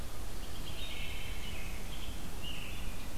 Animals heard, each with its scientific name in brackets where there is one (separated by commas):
Wood Thrush (Hylocichla mustelina), American Robin (Turdus migratorius)